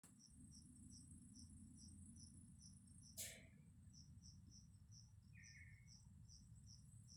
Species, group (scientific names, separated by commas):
Eumodicogryllus bordigalensis, Orthoptera